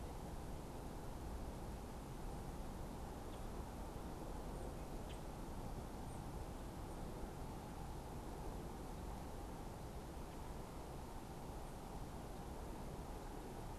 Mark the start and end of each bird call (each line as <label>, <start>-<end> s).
Common Grackle (Quiscalus quiscula), 3.2-5.3 s
unidentified bird, 4.0-6.6 s